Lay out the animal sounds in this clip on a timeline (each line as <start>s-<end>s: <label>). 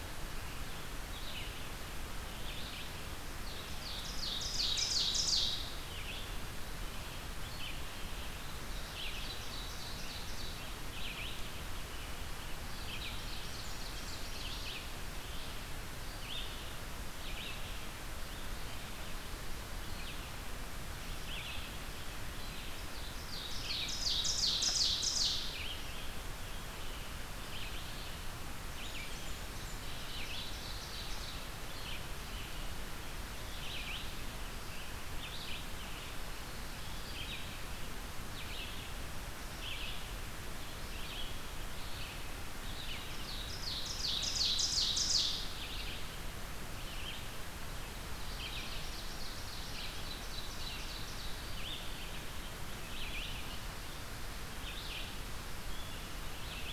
0.0s-13.2s: Red-eyed Vireo (Vireo olivaceus)
3.3s-5.8s: Ovenbird (Seiurus aurocapilla)
8.6s-11.0s: Ovenbird (Seiurus aurocapilla)
12.7s-14.3s: Ovenbird (Seiurus aurocapilla)
13.2s-14.3s: Blackburnian Warbler (Setophaga fusca)
14.2s-56.7s: Red-eyed Vireo (Vireo olivaceus)
22.9s-25.8s: Ovenbird (Seiurus aurocapilla)
28.8s-29.9s: Blackburnian Warbler (Setophaga fusca)
29.8s-31.6s: Ovenbird (Seiurus aurocapilla)
43.2s-45.6s: Ovenbird (Seiurus aurocapilla)
48.3s-51.4s: Ovenbird (Seiurus aurocapilla)